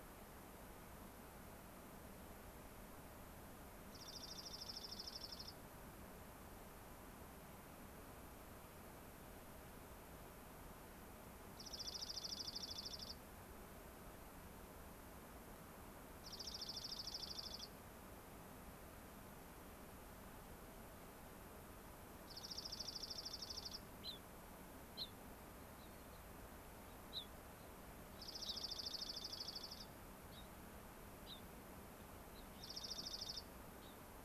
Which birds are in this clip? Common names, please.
Dark-eyed Junco, Gray-crowned Rosy-Finch, unidentified bird